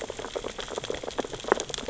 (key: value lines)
label: biophony, sea urchins (Echinidae)
recorder: SoundTrap 600 or HydroMoth